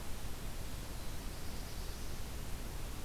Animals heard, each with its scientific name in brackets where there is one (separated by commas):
Black-throated Blue Warbler (Setophaga caerulescens)